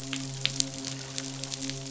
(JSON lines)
{"label": "biophony, midshipman", "recorder": "SoundTrap 500"}